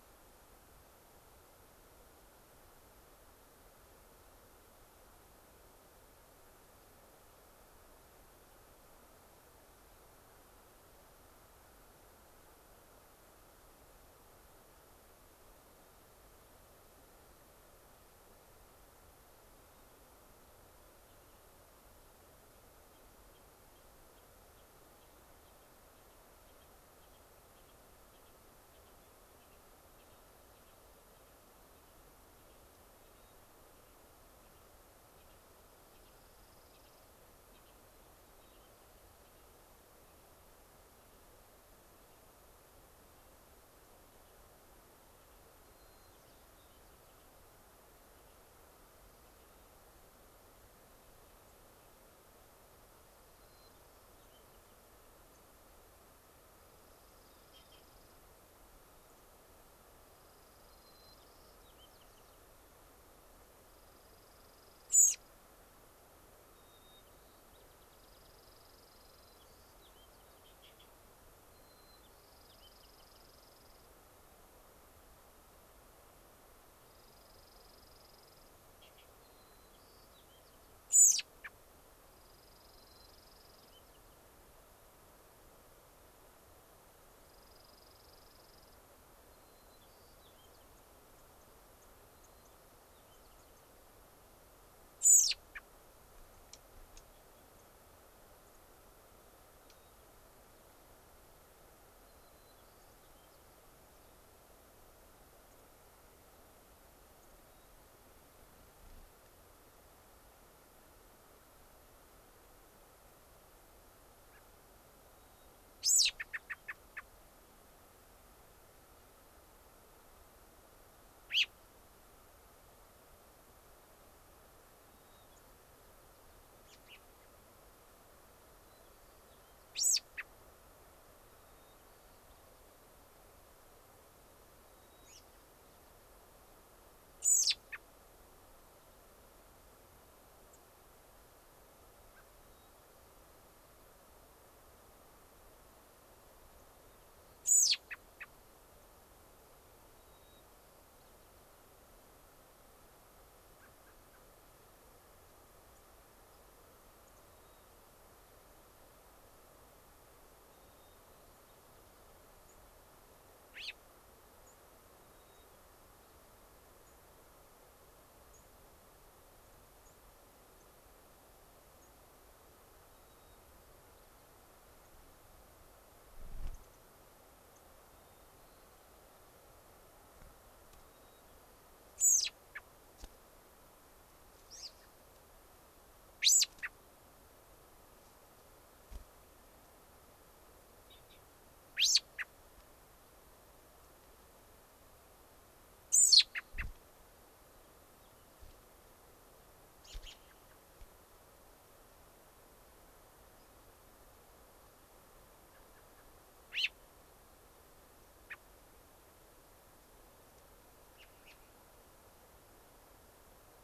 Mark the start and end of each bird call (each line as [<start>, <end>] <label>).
[32.92, 33.42] Hermit Thrush (Catharus guttatus)
[35.92, 37.12] Dark-eyed Junco (Junco hyemalis)
[45.62, 46.82] White-crowned Sparrow (Zonotrichia leucophrys)
[46.12, 46.52] Mountain Chickadee (Poecile gambeli)
[53.02, 53.82] Dark-eyed Junco (Junco hyemalis)
[53.32, 54.82] White-crowned Sparrow (Zonotrichia leucophrys)
[55.32, 55.42] White-crowned Sparrow (Zonotrichia leucophrys)
[56.52, 58.22] Dark-eyed Junco (Junco hyemalis)
[59.92, 61.62] Dark-eyed Junco (Junco hyemalis)
[60.72, 62.42] White-crowned Sparrow (Zonotrichia leucophrys)
[63.62, 65.32] Dark-eyed Junco (Junco hyemalis)
[64.82, 65.22] American Robin (Turdus migratorius)
[66.52, 68.02] White-crowned Sparrow (Zonotrichia leucophrys)
[67.82, 69.42] Dark-eyed Junco (Junco hyemalis)
[68.92, 70.42] White-crowned Sparrow (Zonotrichia leucophrys)
[71.42, 73.22] White-crowned Sparrow (Zonotrichia leucophrys)
[72.12, 73.92] Dark-eyed Junco (Junco hyemalis)
[76.82, 78.52] Dark-eyed Junco (Junco hyemalis)
[79.12, 80.72] White-crowned Sparrow (Zonotrichia leucophrys)
[80.92, 81.52] American Robin (Turdus migratorius)
[82.02, 83.72] Dark-eyed Junco (Junco hyemalis)
[82.62, 84.12] White-crowned Sparrow (Zonotrichia leucophrys)
[87.12, 88.82] Dark-eyed Junco (Junco hyemalis)
[89.22, 93.72] White-crowned Sparrow (Zonotrichia leucophrys)
[94.92, 95.62] American Robin (Turdus migratorius)
[96.42, 96.62] Dark-eyed Junco (Junco hyemalis)
[96.92, 97.02] Dark-eyed Junco (Junco hyemalis)
[97.52, 97.62] White-crowned Sparrow (Zonotrichia leucophrys)
[98.42, 98.62] White-crowned Sparrow (Zonotrichia leucophrys)
[99.62, 99.72] Dark-eyed Junco (Junco hyemalis)
[99.72, 100.02] White-crowned Sparrow (Zonotrichia leucophrys)
[102.02, 103.42] White-crowned Sparrow (Zonotrichia leucophrys)
[105.52, 105.62] White-crowned Sparrow (Zonotrichia leucophrys)
[107.12, 107.72] White-crowned Sparrow (Zonotrichia leucophrys)
[114.22, 114.42] American Robin (Turdus migratorius)
[115.12, 115.52] White-crowned Sparrow (Zonotrichia leucophrys)
[115.72, 117.02] American Robin (Turdus migratorius)
[121.22, 121.52] American Robin (Turdus migratorius)
[124.82, 125.42] White-crowned Sparrow (Zonotrichia leucophrys)
[126.62, 127.02] American Robin (Turdus migratorius)
[128.62, 129.62] White-crowned Sparrow (Zonotrichia leucophrys)
[129.72, 130.32] American Robin (Turdus migratorius)
[131.32, 132.42] White-crowned Sparrow (Zonotrichia leucophrys)
[134.62, 135.22] White-crowned Sparrow (Zonotrichia leucophrys)
[135.02, 135.22] American Robin (Turdus migratorius)
[137.12, 137.82] American Robin (Turdus migratorius)
[140.52, 140.62] White-crowned Sparrow (Zonotrichia leucophrys)
[142.12, 142.22] American Robin (Turdus migratorius)
[142.42, 142.82] Hermit Thrush (Catharus guttatus)
[147.42, 148.32] American Robin (Turdus migratorius)
[149.92, 151.62] White-crowned Sparrow (Zonotrichia leucophrys)
[153.52, 154.22] American Robin (Turdus migratorius)
[155.72, 155.82] White-crowned Sparrow (Zonotrichia leucophrys)
[157.02, 157.62] White-crowned Sparrow (Zonotrichia leucophrys)
[160.52, 161.52] White-crowned Sparrow (Zonotrichia leucophrys)
[162.42, 162.52] White-crowned Sparrow (Zonotrichia leucophrys)
[163.52, 163.82] American Robin (Turdus migratorius)
[164.42, 164.52] White-crowned Sparrow (Zonotrichia leucophrys)
[165.02, 166.32] White-crowned Sparrow (Zonotrichia leucophrys)
[166.82, 167.02] White-crowned Sparrow (Zonotrichia leucophrys)
[168.32, 168.42] White-crowned Sparrow (Zonotrichia leucophrys)
[169.72, 169.92] White-crowned Sparrow (Zonotrichia leucophrys)
[170.52, 170.62] White-crowned Sparrow (Zonotrichia leucophrys)
[171.72, 171.92] White-crowned Sparrow (Zonotrichia leucophrys)
[172.92, 174.22] White-crowned Sparrow (Zonotrichia leucophrys)
[174.82, 174.92] White-crowned Sparrow (Zonotrichia leucophrys)
[176.52, 176.82] White-crowned Sparrow (Zonotrichia leucophrys)
[177.52, 177.62] White-crowned Sparrow (Zonotrichia leucophrys)
[177.92, 179.42] White-crowned Sparrow (Zonotrichia leucophrys)
[180.72, 181.82] White-crowned Sparrow (Zonotrichia leucophrys)
[181.92, 182.62] American Robin (Turdus migratorius)
[184.42, 184.92] American Robin (Turdus migratorius)
[186.12, 186.72] American Robin (Turdus migratorius)
[191.72, 192.22] American Robin (Turdus migratorius)
[195.82, 196.62] American Robin (Turdus migratorius)
[199.72, 200.52] American Robin (Turdus migratorius)
[203.32, 203.52] unidentified bird
[205.52, 206.02] American Robin (Turdus migratorius)
[206.42, 206.72] American Robin (Turdus migratorius)
[208.22, 208.42] American Robin (Turdus migratorius)
[210.92, 211.42] American Robin (Turdus migratorius)